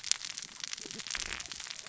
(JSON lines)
{"label": "biophony, cascading saw", "recorder": "SoundTrap 600 or HydroMoth"}